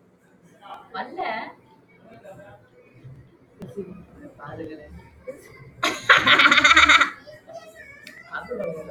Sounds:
Laughter